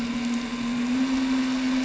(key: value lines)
label: anthrophony, boat engine
recorder: SoundTrap 300